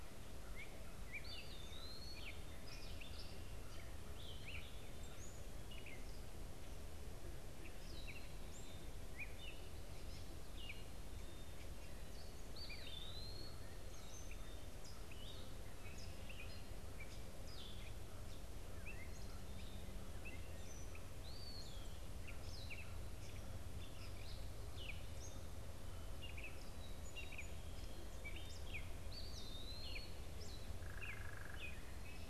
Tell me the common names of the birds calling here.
Gray Catbird, Eastern Wood-Pewee, unidentified bird